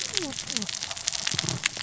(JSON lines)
{"label": "biophony, cascading saw", "recorder": "SoundTrap 600 or HydroMoth"}